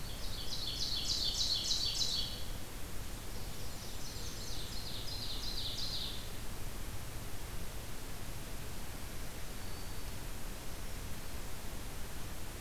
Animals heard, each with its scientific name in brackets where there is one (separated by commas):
Blackburnian Warbler (Setophaga fusca), Ovenbird (Seiurus aurocapilla), Black-throated Green Warbler (Setophaga virens)